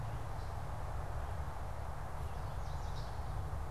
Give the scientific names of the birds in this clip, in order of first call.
Setophaga pensylvanica